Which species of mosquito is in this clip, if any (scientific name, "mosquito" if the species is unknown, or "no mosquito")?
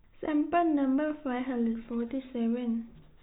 no mosquito